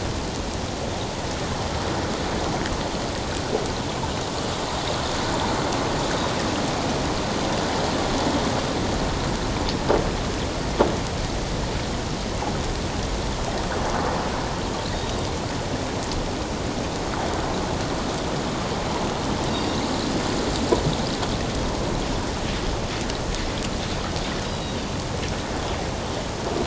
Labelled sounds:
14.9	15.2	Pacific white-sided dolphin, 3.5 to 3.8 kHz
24.4	24.9	Pacific white-sided dolphin, 2.8 to 4.0 kHz

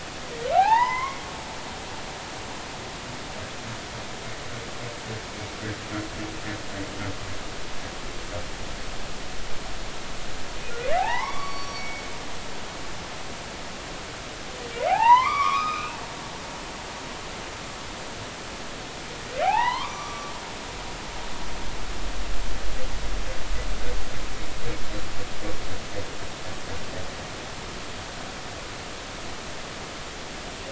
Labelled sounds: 0.5	1.2	humpback whale, 0.80 to 5.2 kHz
11.0	12.0	humpback whale, 0.80 to 5.7 kHz
14.9	16.0	humpback whale, 0.80 to 5.2 kHz
19.4	20.3	humpback whale, 0.80 to 6.0 kHz

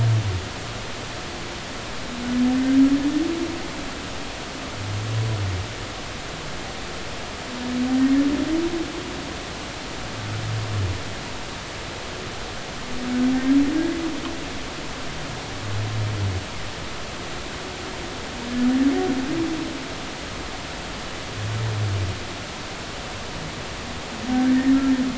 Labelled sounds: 24.3	24.6	humpback whale, 1.5 to 1.8 kHz

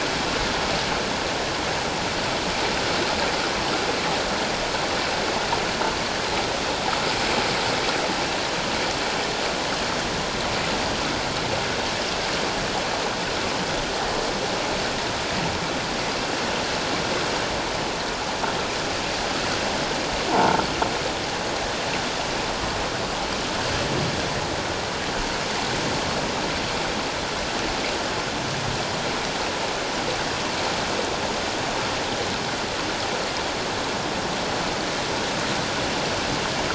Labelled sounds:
20.3	20.6	croaking sound likely from a nearby submerged object, 0.84 to 1.1 kHz

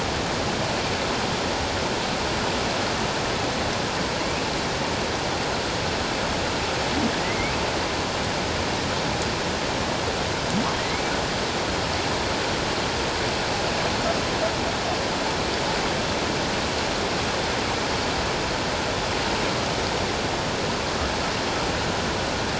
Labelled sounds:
7.2	7.5	humpback whale, 1.9 to 2.3 kHz
10.8	11.0	humpback whale, 1.8 to 2.3 kHz

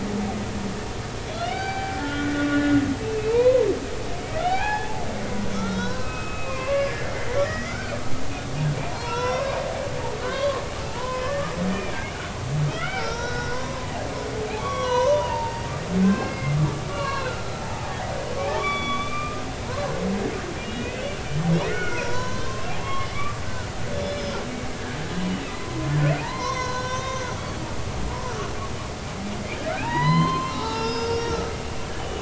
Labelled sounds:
1.3	2.7	humpback whale, 0.80 to 4.7 kHz
3.0	3.7	humpback whale, 0.86 to 2.8 kHz
4.4	8.0	humpback whale, 0.80 to 5.7 kHz
8.9	9.6	humpback whale, 0.90 to 6.1 kHz
10.2	12.0	humpback whale, 0.80 to 3.5 kHz
12.7	13.7	humpback whale, 1.2 to 6.2 kHz
14.6	15.6	humpback whale, 0.86 to 6.3 kHz
16.0	18.1	humpback whale, 0.80 to 4.4 kHz
18.6	19.4	humpback whale, 1.1 to 4.7 kHz
20.6	21.1	humpback whale, 1.8 to 3.9 kHz
21.6	23.4	humpback whale, 0.80 to 7.1 kHz
23.9	25.0	humpback whale, 1.5 to 5.3 kHz
25.5	27.3	humpback whale, 0.83 to 6.7 kHz
29.8	32.2	humpback whale, 0.83 to 6.1 kHz

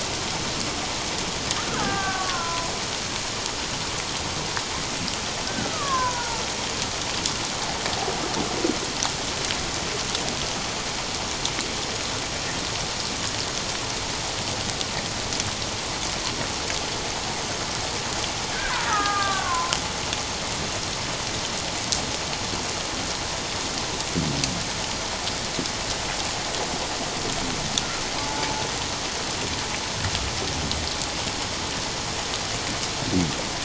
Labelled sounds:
1.6	2.7	killer whale, Bigg's (transient), 0.78 to 1.7 kHz
5.5	6.4	killer whale, Bigg's (transient), 0.84 to 1.7 kHz
18.5	19.7	killer whale, Bigg's (transient), 0.97 to 1.7 kHz
28.2	28.4	killer whale, Bigg's (transient), 0.84 to 0.91 kHz

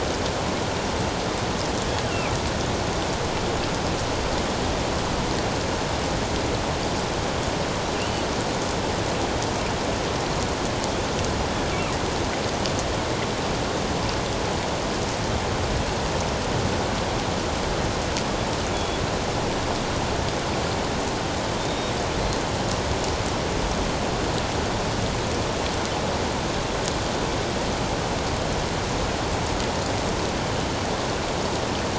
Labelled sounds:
2.1	2.4	killer whale, northern resident, G clan, 2.2 to 2.9 kHz
8.0	8.2	killer whale, northern resident, G clan, 2.6 to 3.0 kHz
18.7	19.0	killer whale, northern resident, G clan, 3.3 to 3.5 kHz
21.6	21.9	killer whale, northern resident, G clan, 3.5 to 3.8 kHz

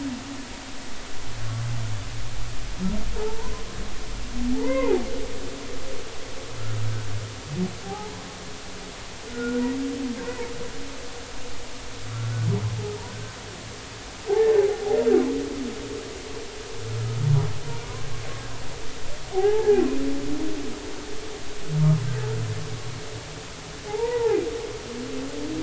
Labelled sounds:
3.2	3.5	humpback whale, 0.83 to 1.1 kHz
4.5	5.0	humpback whale, 0.80 to 2.2 kHz
7.8	8.1	humpback whale, 0.80 to 0.99 kHz
9.3	9.6	humpback whale, 1.3 to 1.6 kHz
10.2	10.5	humpback whale, 0.86 to 2.0 kHz
13.0	13.4	humpback whale, 1.4 to 1.6 kHz
14.3	14.5	humpback whale, 0.80 to 0.93 kHz
19.3	19.8	humpback whale, 0.80 to 1.8 kHz
23.9	24.4	humpback whale, 0.80 to 1.0 kHz

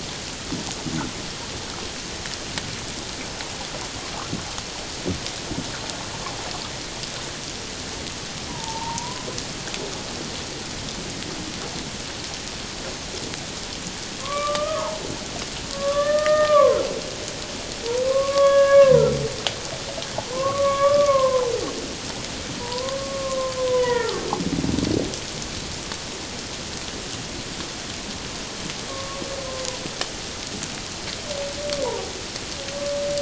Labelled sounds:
8.5	9.3	humpback whale, 0.84 to 1.1 kHz
14.2	15.0	humpback whale, 0.81 to 1.3 kHz
15.7	16.8	humpback whale, 0.97 to 2.0 kHz
18.0	19.1	humpback whale, 0.88 to 3.4 kHz
20.3	21.5	humpback whale, 0.81 to 2.3 kHz
22.6	24.2	humpback whale, 0.81 to 2.0 kHz
28.9	29.2	humpback whale, 1.0 to 1.2 kHz

